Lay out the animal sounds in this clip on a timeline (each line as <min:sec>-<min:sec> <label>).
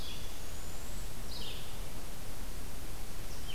0:00.0-0:03.5 Red-eyed Vireo (Vireo olivaceus)
0:00.1-0:01.3 unidentified call